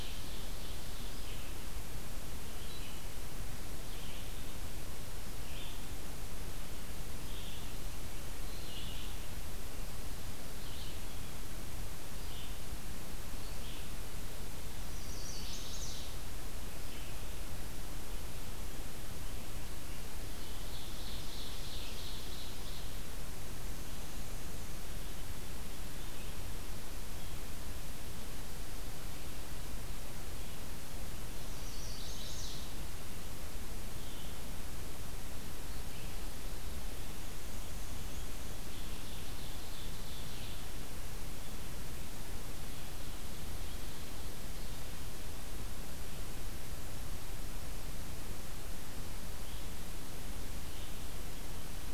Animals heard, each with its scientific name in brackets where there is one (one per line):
Ovenbird (Seiurus aurocapilla)
Black-and-white Warbler (Mniotilta varia)
Red-eyed Vireo (Vireo olivaceus)
Chestnut-sided Warbler (Setophaga pensylvanica)